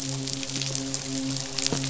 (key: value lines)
label: biophony, midshipman
recorder: SoundTrap 500